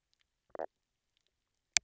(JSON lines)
{"label": "biophony, knock croak", "recorder": "SoundTrap 300"}